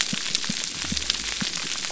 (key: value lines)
label: biophony
recorder: SoundTrap 300